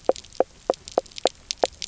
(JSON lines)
{"label": "biophony, knock croak", "recorder": "SoundTrap 300"}